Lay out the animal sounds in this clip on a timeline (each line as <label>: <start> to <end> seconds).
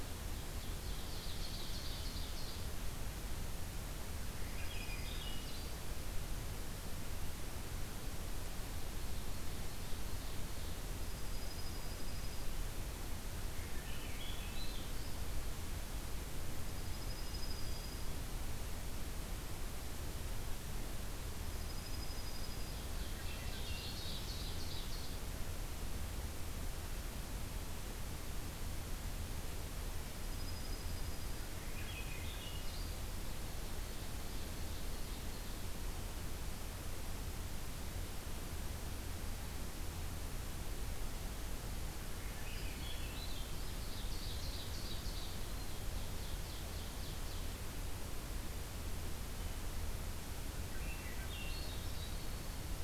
Ovenbird (Seiurus aurocapilla): 0.0 to 2.7 seconds
Swainson's Thrush (Catharus ustulatus): 4.2 to 5.8 seconds
Dark-eyed Junco (Junco hyemalis): 4.4 to 5.6 seconds
Ovenbird (Seiurus aurocapilla): 8.9 to 10.7 seconds
Dark-eyed Junco (Junco hyemalis): 11.0 to 12.5 seconds
Swainson's Thrush (Catharus ustulatus): 13.4 to 15.2 seconds
Dark-eyed Junco (Junco hyemalis): 16.5 to 18.1 seconds
Dark-eyed Junco (Junco hyemalis): 21.3 to 23.0 seconds
Ovenbird (Seiurus aurocapilla): 22.3 to 25.3 seconds
Swainson's Thrush (Catharus ustulatus): 22.9 to 24.5 seconds
Dark-eyed Junco (Junco hyemalis): 30.1 to 31.5 seconds
Swainson's Thrush (Catharus ustulatus): 31.3 to 32.9 seconds
Ovenbird (Seiurus aurocapilla): 33.4 to 35.6 seconds
Swainson's Thrush (Catharus ustulatus): 42.0 to 43.8 seconds
Broad-winged Hawk (Buteo platypterus): 42.5 to 43.3 seconds
Ovenbird (Seiurus aurocapilla): 43.3 to 47.5 seconds
Swainson's Thrush (Catharus ustulatus): 50.2 to 52.2 seconds
Broad-winged Hawk (Buteo platypterus): 51.9 to 52.8 seconds